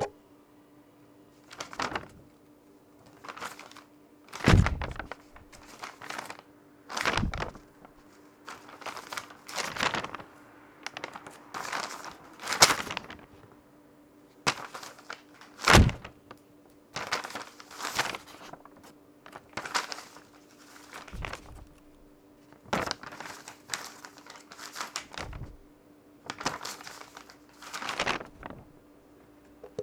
Did the item fall over one hundred feet?
no